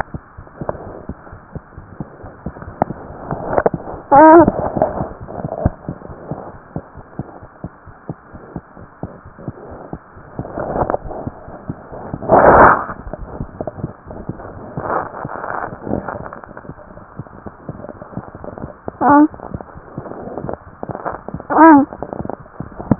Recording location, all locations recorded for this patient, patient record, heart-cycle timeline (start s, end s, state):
aortic valve (AV)
aortic valve (AV)+mitral valve (MV)
#Age: Infant
#Sex: Male
#Height: 64.0 cm
#Weight: 8.9 kg
#Pregnancy status: False
#Murmur: Absent
#Murmur locations: nan
#Most audible location: nan
#Systolic murmur timing: nan
#Systolic murmur shape: nan
#Systolic murmur grading: nan
#Systolic murmur pitch: nan
#Systolic murmur quality: nan
#Diastolic murmur timing: nan
#Diastolic murmur shape: nan
#Diastolic murmur grading: nan
#Diastolic murmur pitch: nan
#Diastolic murmur quality: nan
#Outcome: Normal
#Campaign: 2015 screening campaign
0.00	6.09	unannotated
6.09	6.15	S1
6.15	6.28	systole
6.28	6.36	S2
6.36	6.51	diastole
6.51	6.58	S1
6.58	6.74	systole
6.74	6.82	S2
6.82	6.95	diastole
6.95	7.04	S1
7.04	7.17	systole
7.17	7.23	S2
7.23	7.40	diastole
7.40	7.47	S1
7.47	7.61	systole
7.61	7.68	S2
7.68	7.86	diastole
7.86	7.92	S1
7.92	8.07	systole
8.07	8.14	S2
8.14	8.33	diastole
8.33	8.39	S1
8.39	8.53	systole
8.53	8.60	S2
8.60	8.79	diastole
8.79	8.86	S1
8.86	9.01	systole
9.01	9.06	S2
9.06	9.24	diastole
9.24	9.30	S1
9.30	9.46	systole
9.46	9.53	S2
9.53	9.69	diastole
9.69	9.76	S1
9.76	9.91	systole
9.91	9.99	S2
9.99	10.15	diastole
10.15	10.23	S1
10.23	10.37	systole
10.37	10.45	S2
10.45	22.99	unannotated